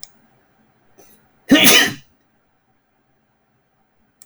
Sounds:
Sneeze